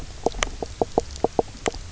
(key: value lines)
label: biophony, knock croak
recorder: SoundTrap 300